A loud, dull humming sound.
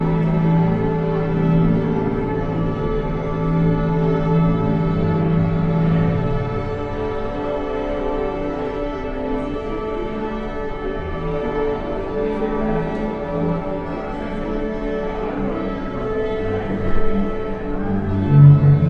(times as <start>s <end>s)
18.3s 18.9s